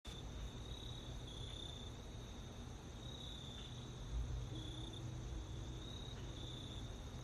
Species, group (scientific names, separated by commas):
Hapithus saltator, Orthoptera